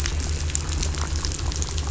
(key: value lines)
label: anthrophony, boat engine
recorder: SoundTrap 500